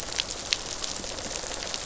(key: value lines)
label: biophony, rattle response
recorder: SoundTrap 500